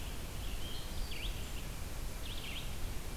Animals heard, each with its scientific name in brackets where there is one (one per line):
Red-eyed Vireo (Vireo olivaceus)